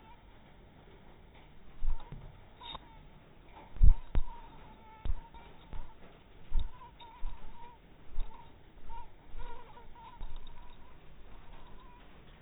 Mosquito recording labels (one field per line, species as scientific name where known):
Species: mosquito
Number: one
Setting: cup